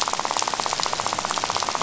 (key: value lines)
label: biophony, rattle
recorder: SoundTrap 500